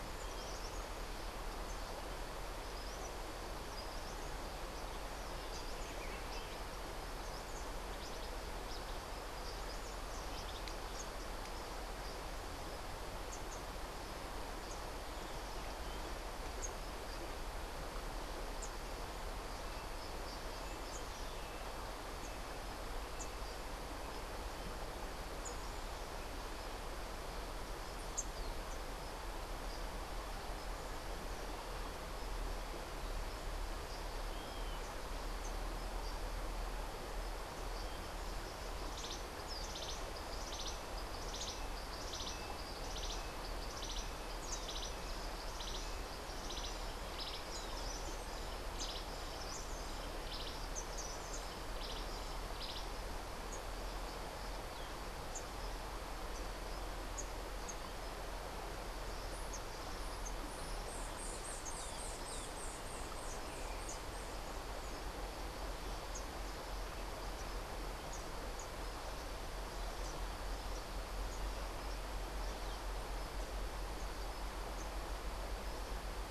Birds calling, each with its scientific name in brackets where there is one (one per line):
Cabanis's Wren (Cantorchilus modestus)
White-eared Ground-Sparrow (Melozone leucotis)